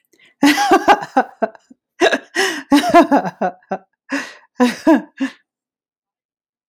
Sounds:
Laughter